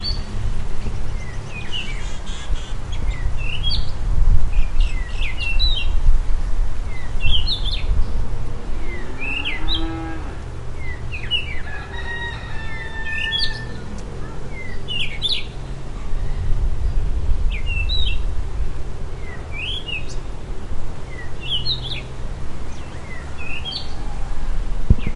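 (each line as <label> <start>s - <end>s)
Different birds are tweeting and singing. 0.0s - 25.1s
A cow is mooing. 9.0s - 10.7s
A rooster crows. 11.6s - 14.0s
Strange thumping noises. 16.4s - 18.7s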